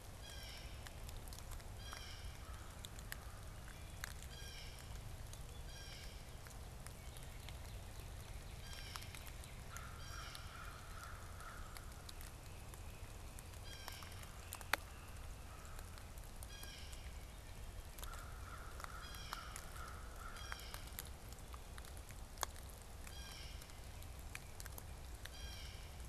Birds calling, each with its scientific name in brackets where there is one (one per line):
Great Crested Flycatcher (Myiarchus crinitus)
Blue Jay (Cyanocitta cristata)
American Crow (Corvus brachyrhynchos)